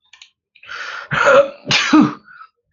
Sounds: Sneeze